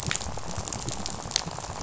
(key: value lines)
label: biophony, rattle
recorder: SoundTrap 500